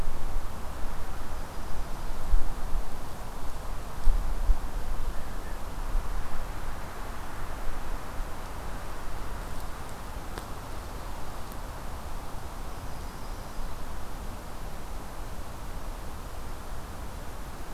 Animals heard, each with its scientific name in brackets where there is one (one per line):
Yellow-rumped Warbler (Setophaga coronata)